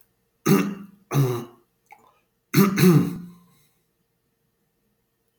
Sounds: Throat clearing